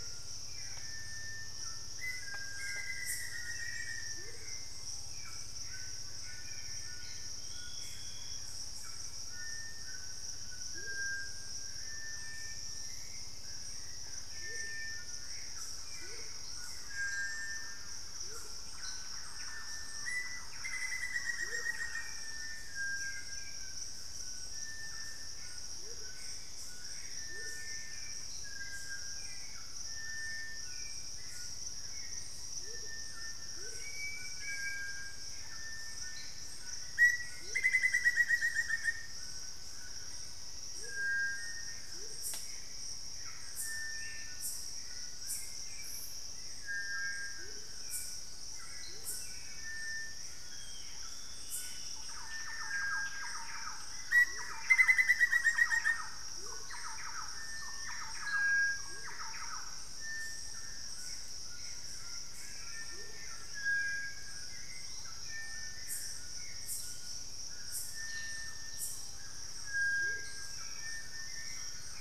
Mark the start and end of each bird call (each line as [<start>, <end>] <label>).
[0.00, 4.52] Amazonian Motmot (Momotus momota)
[0.00, 29.42] Little Tinamou (Crypturellus soui)
[0.00, 33.52] Cinereous Tinamou (Crypturellus cinereus)
[0.00, 72.01] Hauxwell's Thrush (Turdus hauxwelli)
[0.00, 72.01] White-throated Toucan (Ramphastos tucanus)
[1.82, 4.32] Black-faced Antthrush (Formicarius analis)
[5.42, 8.82] Gray Antbird (Cercomacra cinerascens)
[10.62, 27.62] Amazonian Motmot (Momotus momota)
[15.52, 22.22] Thrush-like Wren (Campylorhynchus turdinus)
[19.92, 22.42] Black-faced Antthrush (Formicarius analis)
[25.12, 28.32] Gray Antbird (Cercomacra cinerascens)
[32.52, 42.32] Amazonian Motmot (Momotus momota)
[33.72, 34.92] Ringed Woodpecker (Celeus torquatus)
[36.82, 39.12] Black-faced Antthrush (Formicarius analis)
[47.22, 49.22] Amazonian Motmot (Momotus momota)
[50.52, 52.02] Black-spotted Bare-eye (Phlegopsis nigromaculata)
[51.92, 60.02] Thrush-like Wren (Campylorhynchus turdinus)
[54.22, 63.22] Amazonian Motmot (Momotus momota)
[54.62, 56.12] Black-faced Antthrush (Formicarius analis)
[61.22, 63.52] Plain-winged Antshrike (Thamnophilus schistaceus)
[64.72, 65.32] unidentified bird
[66.72, 69.92] unidentified bird
[69.92, 72.01] Amazonian Motmot (Momotus momota)